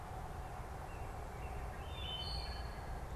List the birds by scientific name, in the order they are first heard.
Turdus migratorius, Hylocichla mustelina